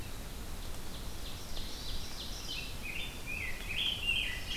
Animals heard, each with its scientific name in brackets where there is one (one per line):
Rose-breasted Grosbeak (Pheucticus ludovicianus)
Ovenbird (Seiurus aurocapilla)
Hermit Thrush (Catharus guttatus)